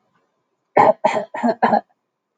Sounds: Cough